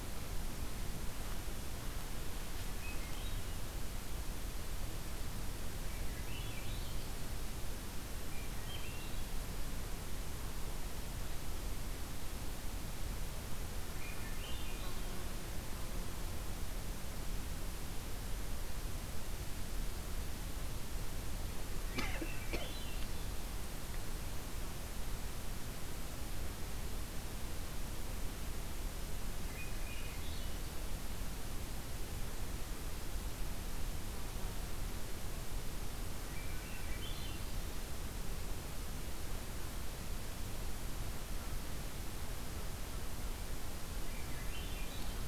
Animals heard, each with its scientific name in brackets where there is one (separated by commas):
Swainson's Thrush (Catharus ustulatus)